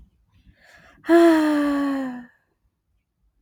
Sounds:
Sigh